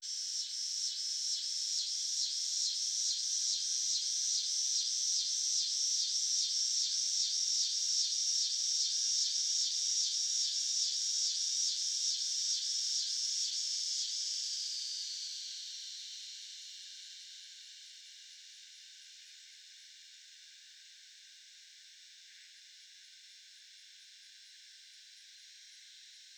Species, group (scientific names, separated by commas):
Neotibicen winnemanna, Cicadidae